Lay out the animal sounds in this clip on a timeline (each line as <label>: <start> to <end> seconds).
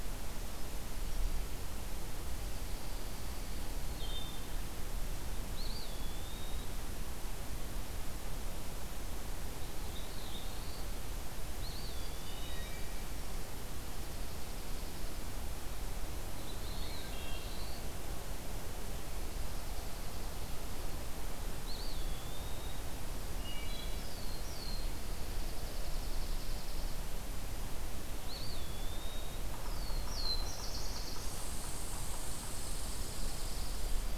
Dark-eyed Junco (Junco hyemalis): 2.3 to 3.9 seconds
Wood Thrush (Hylocichla mustelina): 3.7 to 4.6 seconds
Eastern Wood-Pewee (Contopus virens): 5.4 to 6.9 seconds
Black-throated Blue Warbler (Setophaga caerulescens): 9.3 to 11.1 seconds
Eastern Wood-Pewee (Contopus virens): 11.4 to 12.8 seconds
Wood Thrush (Hylocichla mustelina): 12.2 to 13.3 seconds
Dark-eyed Junco (Junco hyemalis): 13.4 to 15.3 seconds
Black-throated Blue Warbler (Setophaga caerulescens): 16.3 to 17.9 seconds
Wood Thrush (Hylocichla mustelina): 16.7 to 17.6 seconds
Dark-eyed Junco (Junco hyemalis): 19.1 to 20.5 seconds
Eastern Wood-Pewee (Contopus virens): 21.5 to 23.0 seconds
Wood Thrush (Hylocichla mustelina): 23.2 to 24.1 seconds
Black-throated Blue Warbler (Setophaga caerulescens): 23.9 to 25.0 seconds
Dark-eyed Junco (Junco hyemalis): 25.0 to 27.1 seconds
Eastern Wood-Pewee (Contopus virens): 28.2 to 29.5 seconds
Yellow-bellied Sapsucker (Sphyrapicus varius): 29.4 to 32.3 seconds
Black-throated Blue Warbler (Setophaga caerulescens): 29.4 to 31.5 seconds
Red Squirrel (Tamiasciurus hudsonicus): 31.3 to 34.2 seconds